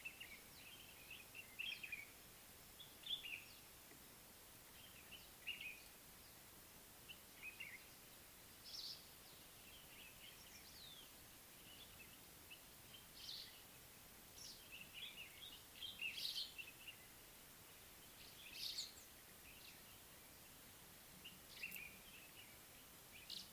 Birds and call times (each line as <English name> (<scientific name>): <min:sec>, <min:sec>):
Common Bulbul (Pycnonotus barbatus): 0:01.7, 0:16.0, 0:21.6
Brimstone Canary (Crithagra sulphurata): 0:08.7, 0:13.3